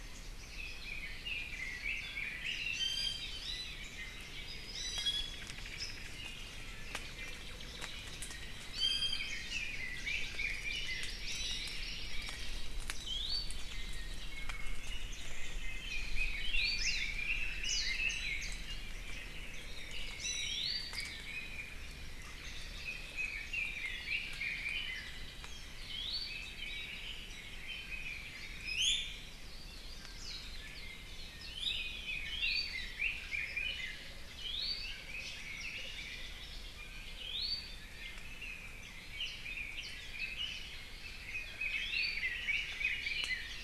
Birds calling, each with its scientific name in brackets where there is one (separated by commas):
Apapane (Himatione sanguinea), Red-billed Leiothrix (Leiothrix lutea), Omao (Myadestes obscurus), Iiwi (Drepanis coccinea), Hawaii Creeper (Loxops mana), Warbling White-eye (Zosterops japonicus), Hawaii Amakihi (Chlorodrepanis virens)